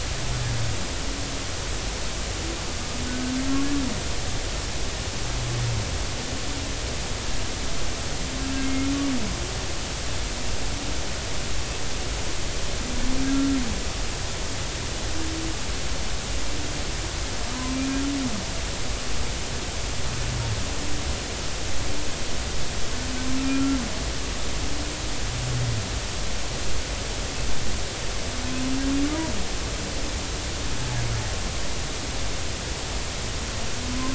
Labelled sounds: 8.6	8.9	humpback whale, 2.1 to 2.2 kHz
23.3	23.8	humpback whale, 1.3 to 1.5 kHz
33.9	34.1	humpback whale, 0.96 to 1.1 kHz

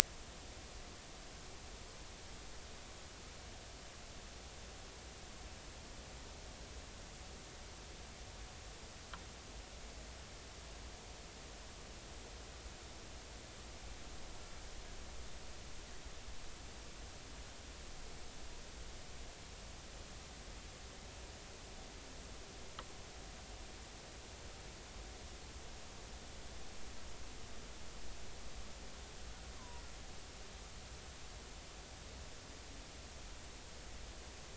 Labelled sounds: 29.6	29.8	killer whale, Bigg's (transient), 0.90 to 1.2 kHz

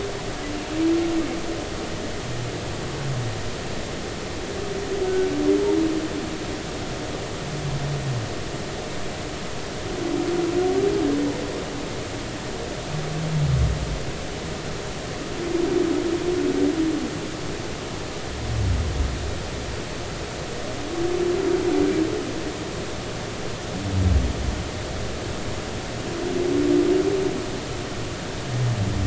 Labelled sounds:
5.0	5.3	humpback whale, 1.4 to 1.5 kHz

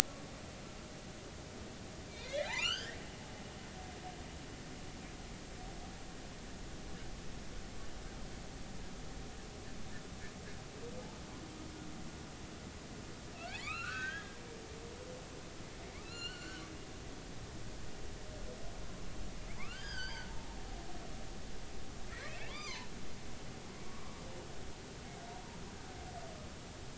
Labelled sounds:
2.2	3.0	humpback whale, 1.2 to 7.5 kHz
13.4	14.4	humpback whale, 1.1 to 4.3 kHz
15.9	16.6	humpback whale, 0.99 to 4.5 kHz
19.5	20.3	humpback whale, 0.83 to 5.3 kHz
22.3	22.9	humpback whale, 0.86 to 3.3 kHz
23.8	24.2	humpback whale, 1.0 to 1.2 kHz

